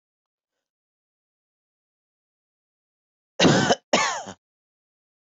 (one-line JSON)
{"expert_labels": [{"quality": "good", "cough_type": "dry", "dyspnea": false, "wheezing": false, "stridor": false, "choking": false, "congestion": false, "nothing": true, "diagnosis": "healthy cough", "severity": "pseudocough/healthy cough"}], "age": 34, "gender": "male", "respiratory_condition": false, "fever_muscle_pain": false, "status": "healthy"}